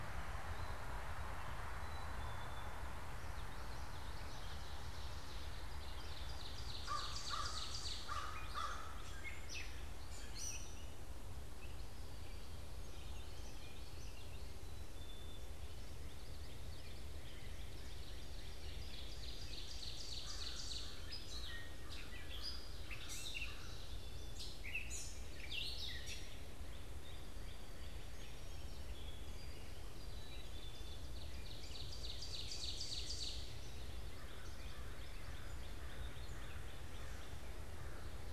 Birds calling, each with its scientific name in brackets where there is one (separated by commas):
Gray Catbird (Dumetella carolinensis), American Crow (Corvus brachyrhynchos), Black-capped Chickadee (Poecile atricapillus), Northern Cardinal (Cardinalis cardinalis), Ovenbird (Seiurus aurocapilla), Common Yellowthroat (Geothlypis trichas), Song Sparrow (Melospiza melodia)